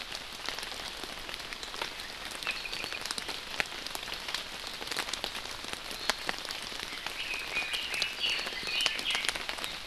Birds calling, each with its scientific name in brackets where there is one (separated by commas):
Red-billed Leiothrix (Leiothrix lutea), Apapane (Himatione sanguinea)